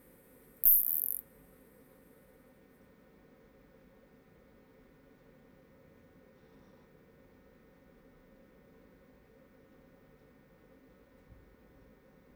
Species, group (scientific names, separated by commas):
Isophya longicaudata, Orthoptera